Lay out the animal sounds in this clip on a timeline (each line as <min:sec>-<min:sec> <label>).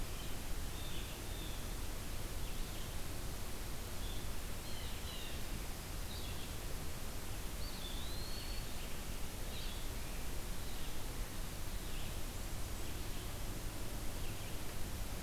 0:00.0-0:15.2 Blue-headed Vireo (Vireo solitarius)
0:00.6-0:01.6 Blue Jay (Cyanocitta cristata)
0:04.4-0:05.4 Blue Jay (Cyanocitta cristata)
0:07.5-0:08.7 Eastern Wood-Pewee (Contopus virens)